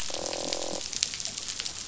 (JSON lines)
{"label": "biophony, croak", "recorder": "SoundTrap 500"}